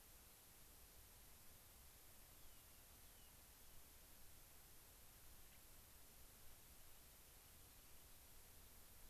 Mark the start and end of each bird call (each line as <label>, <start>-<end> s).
Rock Wren (Salpinctes obsoletus), 2.3-3.9 s
Gray-crowned Rosy-Finch (Leucosticte tephrocotis), 5.5-5.6 s